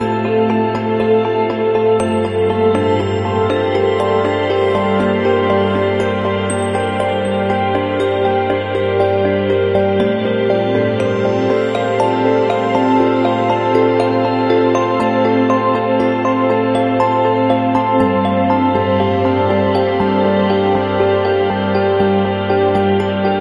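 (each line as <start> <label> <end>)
0.0 An instrumental piece blending melodic and atmospheric elements with a deep, spacey tone, combining classical and electronic influences to create a relaxed yet experimental soundscape. 23.4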